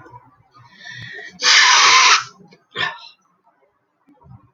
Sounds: Sniff